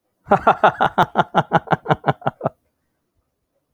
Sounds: Laughter